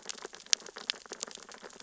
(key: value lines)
label: biophony, sea urchins (Echinidae)
recorder: SoundTrap 600 or HydroMoth